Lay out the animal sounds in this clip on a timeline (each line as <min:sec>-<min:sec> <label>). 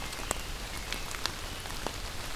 0:00.0-0:01.8 American Robin (Turdus migratorius)